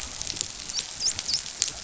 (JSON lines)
{"label": "biophony, dolphin", "recorder": "SoundTrap 500"}